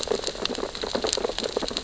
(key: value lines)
label: biophony, sea urchins (Echinidae)
recorder: SoundTrap 600 or HydroMoth